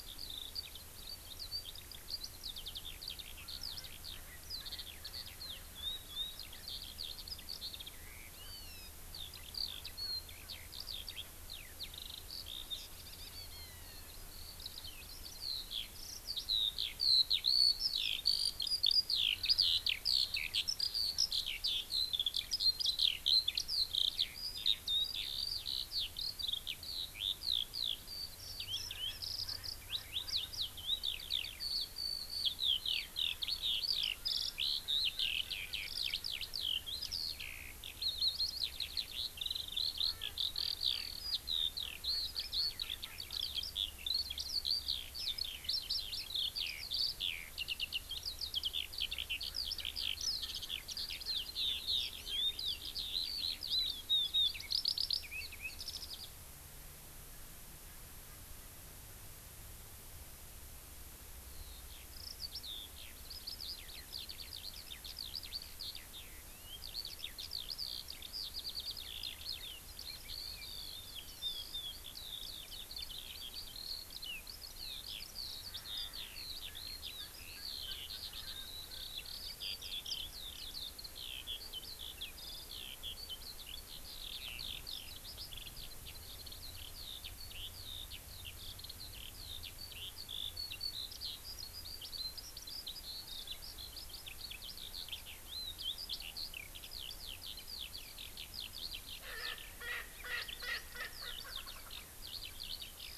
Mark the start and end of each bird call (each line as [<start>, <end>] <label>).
[0.00, 56.28] Eurasian Skylark (Alauda arvensis)
[61.48, 103.18] Eurasian Skylark (Alauda arvensis)
[99.18, 101.98] Erckel's Francolin (Pternistis erckelii)